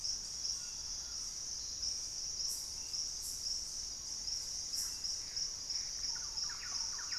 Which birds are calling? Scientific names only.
Trogon collaris, Querula purpurata, Cercomacra cinerascens, Campylorhynchus turdinus